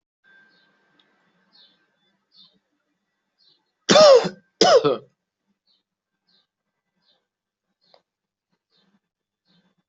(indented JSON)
{
  "expert_labels": [
    {
      "quality": "good",
      "cough_type": "unknown",
      "dyspnea": false,
      "wheezing": false,
      "stridor": false,
      "choking": false,
      "congestion": false,
      "nothing": true,
      "diagnosis": "healthy cough",
      "severity": "pseudocough/healthy cough"
    }
  ],
  "age": 25,
  "gender": "male",
  "respiratory_condition": true,
  "fever_muscle_pain": false,
  "status": "COVID-19"
}